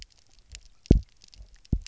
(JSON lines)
{"label": "biophony, double pulse", "recorder": "SoundTrap 300"}